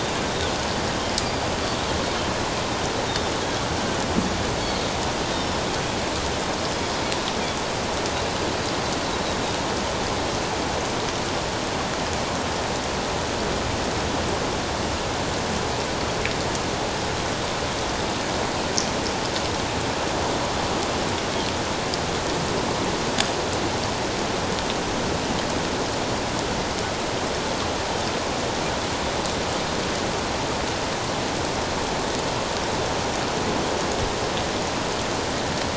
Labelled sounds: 3.1	3.3	Pacific white-sided dolphin, 3.5 to 3.8 kHz

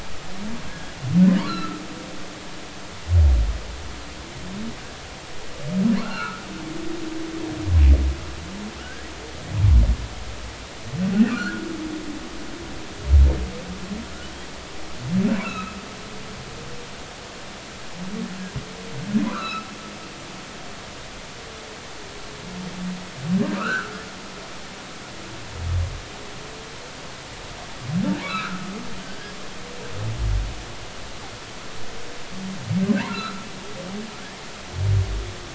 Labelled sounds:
0.7	0.9	humpback whale, 1.6 to 1.7 kHz
1.4	1.8	humpback whale, 1.2 to 4.4 kHz
6.0	6.4	humpback whale, 0.83 to 1.6 kHz
8.8	9.1	humpback whale, 1.2 to 1.8 kHz
11.2	11.7	humpback whale, 1.2 to 1.7 kHz
15.4	15.7	humpback whale, 1.2 to 2.8 kHz
19.2	19.7	humpback whale, 0.93 to 4.1 kHz
23.6	24.0	humpback whale, 1.1 to 1.7 kHz
28.2	29.3	humpback whale, 1.1 to 2.7 kHz
33.1	33.5	humpback whale, 1.2 to 1.6 kHz

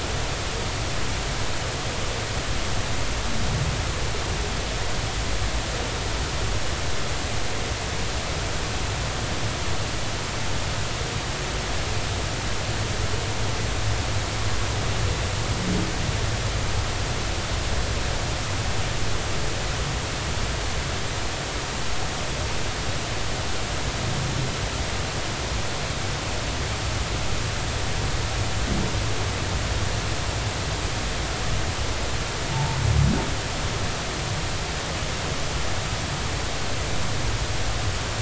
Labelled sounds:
32.5	32.8	humpback whale, 0.80 to 0.96 kHz

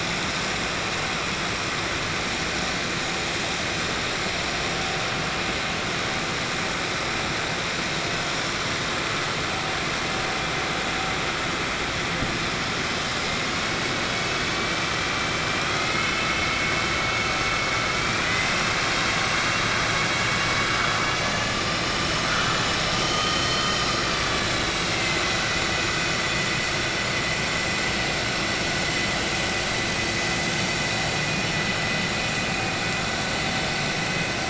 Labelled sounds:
18.1	19.7	vessel noise, 1.5 to 4.9 kHz

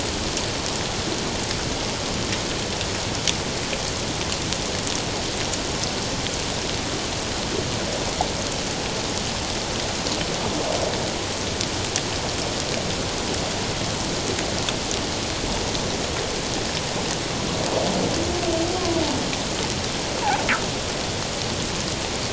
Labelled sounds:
18.8	19.0	humpback whale, 0.97 to 1.2 kHz

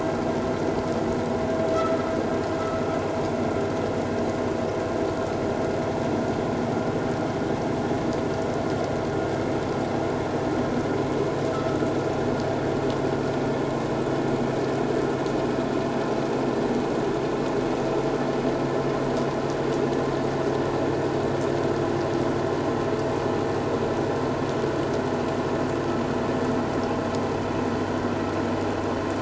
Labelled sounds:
1.7	2.0	vessel noise, 1.2 to 1.4 kHz

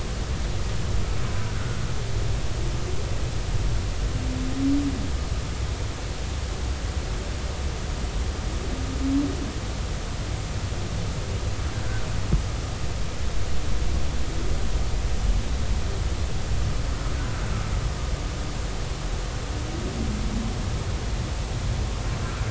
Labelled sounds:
1.2	1.8	humpback whale, 0.93 to 1.6 kHz

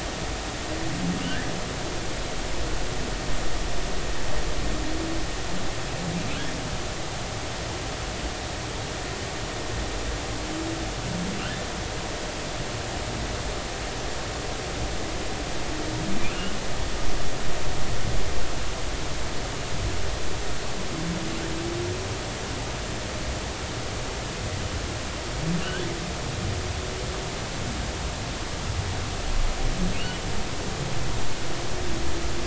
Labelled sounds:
29.9	30.2	humpback whale, 2.6 to 3.0 kHz

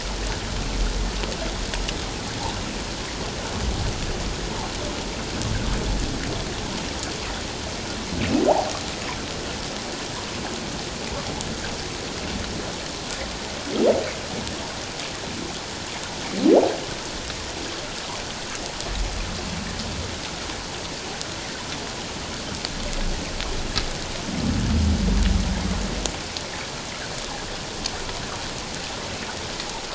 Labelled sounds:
8.5	8.7	humpback whale, 0.78 to 1.0 kHz

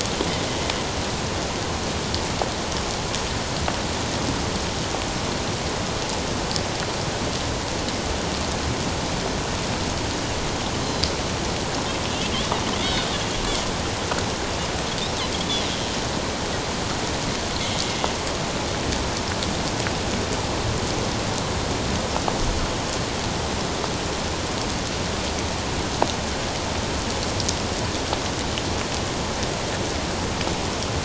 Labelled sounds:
10.8	11.1	Pacific white-sided dolphin, 4.0 to 4.2 kHz
12.8	13.1	Pacific white-sided dolphin, 3.3 to 3.9 kHz

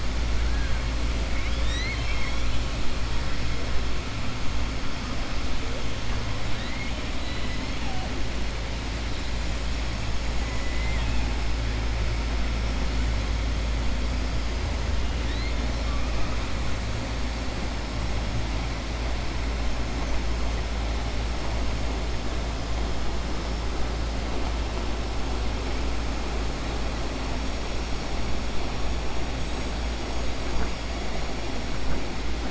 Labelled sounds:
1.3	2.5	killer whale, southern resident, 1.8 to 7.8 kHz
6.5	7.6	killer whale, southern resident, 1.8 to 5.1 kHz
10.6	11.2	killer whale, southern resident, 1.1 to 3.5 kHz

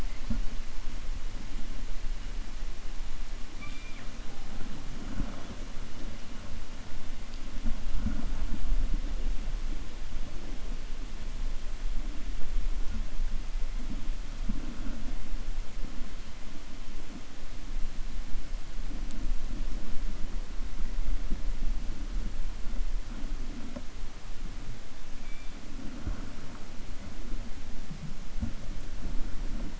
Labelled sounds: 3.5	4.1	killer whale, 1.2 to 4.0 kHz

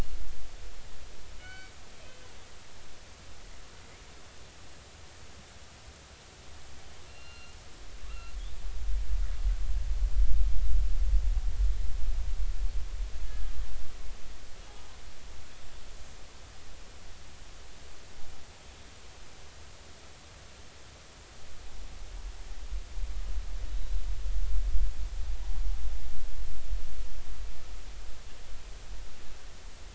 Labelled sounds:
1.4	1.7	killer whale, northern resident, G clan, call N24ii, 1.4 to 4.6 kHz
7.1	7.5	killer whale, northern resident, A clan, 1.3 to 4.2 kHz
8.0	8.6	killer whale, northern resident, A clan, 1.1 to 2.8 kHz

